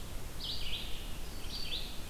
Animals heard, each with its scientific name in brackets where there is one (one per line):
Red-eyed Vireo (Vireo olivaceus)